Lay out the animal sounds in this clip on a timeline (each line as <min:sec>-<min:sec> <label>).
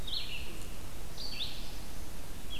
0:00.0-0:02.6 Red-eyed Vireo (Vireo olivaceus)